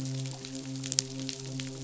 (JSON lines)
{"label": "biophony, midshipman", "recorder": "SoundTrap 500"}